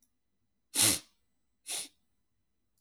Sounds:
Sniff